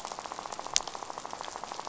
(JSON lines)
{"label": "biophony, rattle", "recorder": "SoundTrap 500"}